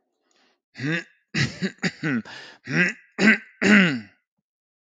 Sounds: Throat clearing